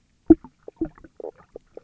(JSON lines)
{"label": "biophony, knock croak", "recorder": "SoundTrap 300"}